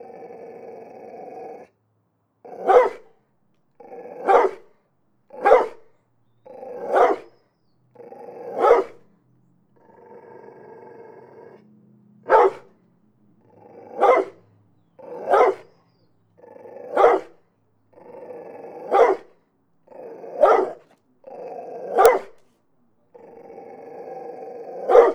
How many times does the dog bark?
thirteen